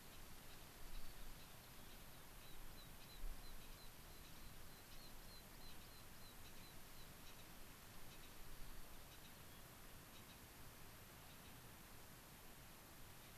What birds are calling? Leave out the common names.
Zonotrichia leucophrys, Anthus rubescens